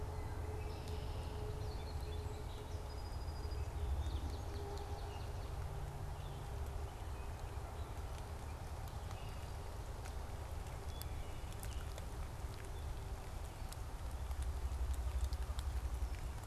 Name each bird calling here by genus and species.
Agelaius phoeniceus, Melospiza melodia, Melospiza georgiana, Hylocichla mustelina